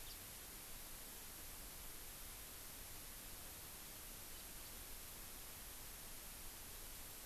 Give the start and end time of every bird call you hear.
[0.00, 0.20] House Finch (Haemorhous mexicanus)

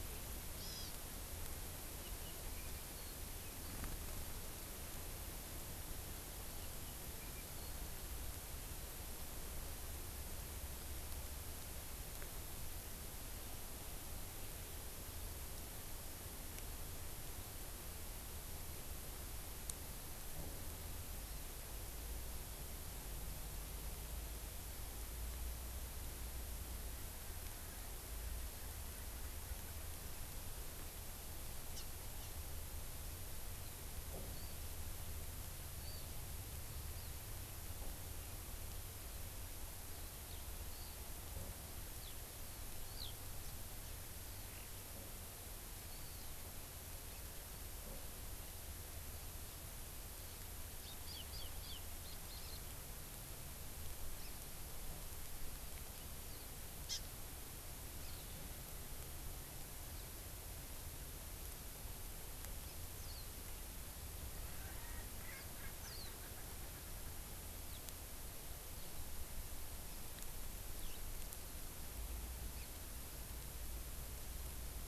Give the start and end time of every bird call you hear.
[0.60, 0.90] Hawaii Amakihi (Chlorodrepanis virens)
[34.30, 34.50] Warbling White-eye (Zosterops japonicus)
[35.80, 36.10] Warbling White-eye (Zosterops japonicus)
[40.70, 41.00] Warbling White-eye (Zosterops japonicus)
[42.00, 42.10] Eurasian Skylark (Alauda arvensis)
[42.90, 43.10] Eurasian Skylark (Alauda arvensis)
[56.90, 57.00] Hawaii Amakihi (Chlorodrepanis virens)
[63.00, 63.20] Warbling White-eye (Zosterops japonicus)
[64.50, 67.10] Erckel's Francolin (Pternistis erckelii)
[65.80, 66.10] Warbling White-eye (Zosterops japonicus)
[70.80, 71.00] Eurasian Skylark (Alauda arvensis)

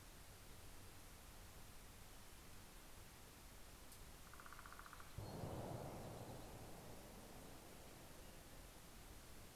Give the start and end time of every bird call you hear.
[3.30, 5.40] Northern Flicker (Colaptes auratus)

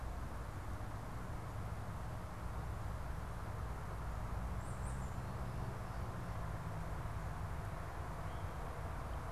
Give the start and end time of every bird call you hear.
[4.32, 6.62] Tufted Titmouse (Baeolophus bicolor)

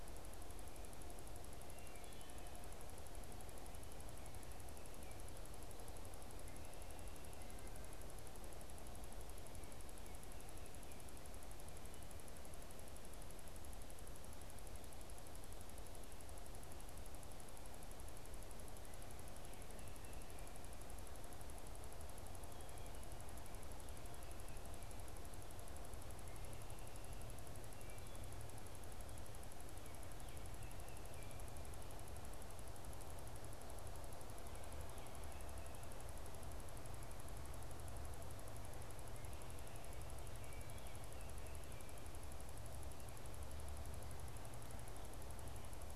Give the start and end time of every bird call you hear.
[1.58, 2.48] Wood Thrush (Hylocichla mustelina)
[29.78, 31.58] Baltimore Oriole (Icterus galbula)
[40.28, 42.18] Baltimore Oriole (Icterus galbula)

